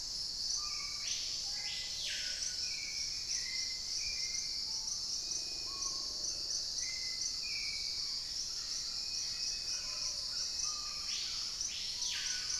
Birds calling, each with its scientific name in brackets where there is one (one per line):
Screaming Piha (Lipaugus vociferans)
unidentified bird
Cinereous Mourner (Laniocera hypopyrra)
Hauxwell's Thrush (Turdus hauxwelli)